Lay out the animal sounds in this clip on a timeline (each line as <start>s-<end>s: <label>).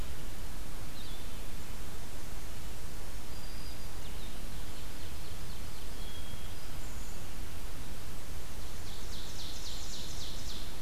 0.8s-1.4s: Blue-headed Vireo (Vireo solitarius)
3.0s-4.0s: Black-throated Green Warbler (Setophaga virens)
3.9s-6.2s: Ovenbird (Seiurus aurocapilla)
5.8s-6.8s: Hermit Thrush (Catharus guttatus)
8.3s-10.8s: Ovenbird (Seiurus aurocapilla)